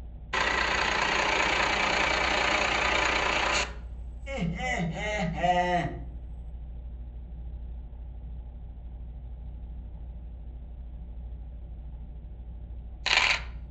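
At 0.32 seconds, an engine can be heard. Then, at 4.26 seconds, laughter is audible. Finally, at 13.03 seconds, a coin drops.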